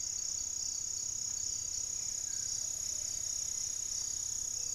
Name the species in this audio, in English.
Plumbeous Antbird, Plumbeous Pigeon, Buff-breasted Wren